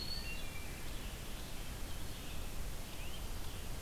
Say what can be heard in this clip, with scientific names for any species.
Contopus virens, Vireo olivaceus, Hylocichla mustelina, Myiarchus crinitus